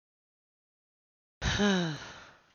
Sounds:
Sigh